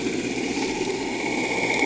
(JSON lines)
{"label": "anthrophony, boat engine", "recorder": "HydroMoth"}